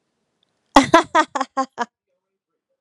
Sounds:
Laughter